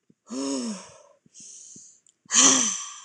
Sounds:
Sigh